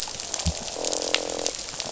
{"label": "biophony, croak", "recorder": "SoundTrap 500"}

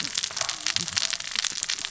{"label": "biophony, cascading saw", "recorder": "SoundTrap 600 or HydroMoth"}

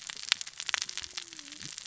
{"label": "biophony, cascading saw", "recorder": "SoundTrap 600 or HydroMoth"}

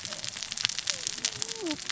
{"label": "biophony, cascading saw", "recorder": "SoundTrap 600 or HydroMoth"}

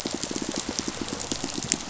{"label": "biophony, pulse", "recorder": "SoundTrap 500"}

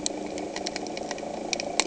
{"label": "anthrophony, boat engine", "recorder": "HydroMoth"}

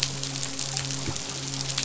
{"label": "biophony, midshipman", "recorder": "SoundTrap 500"}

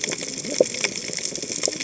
{"label": "biophony, cascading saw", "recorder": "HydroMoth"}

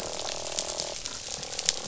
{"label": "biophony, croak", "recorder": "SoundTrap 500"}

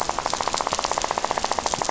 {"label": "biophony, rattle", "recorder": "SoundTrap 500"}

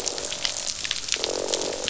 {"label": "biophony, croak", "recorder": "SoundTrap 500"}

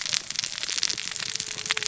{"label": "biophony, cascading saw", "recorder": "SoundTrap 600 or HydroMoth"}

